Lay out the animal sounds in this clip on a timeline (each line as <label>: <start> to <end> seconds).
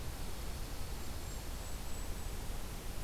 Dark-eyed Junco (Junco hyemalis): 0.0 to 1.9 seconds
Golden-crowned Kinglet (Regulus satrapa): 0.8 to 2.4 seconds